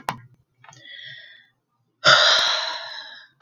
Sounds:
Sigh